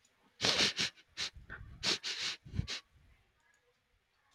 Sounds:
Sniff